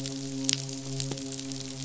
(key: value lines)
label: biophony, midshipman
recorder: SoundTrap 500